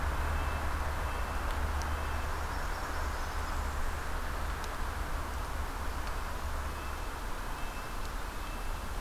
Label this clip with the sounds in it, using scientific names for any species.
Sitta canadensis, Setophaga fusca